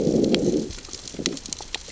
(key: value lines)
label: biophony, growl
recorder: SoundTrap 600 or HydroMoth